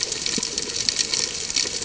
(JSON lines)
{"label": "ambient", "recorder": "HydroMoth"}